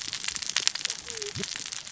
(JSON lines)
{"label": "biophony, cascading saw", "recorder": "SoundTrap 600 or HydroMoth"}